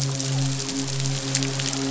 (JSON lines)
{"label": "biophony, midshipman", "recorder": "SoundTrap 500"}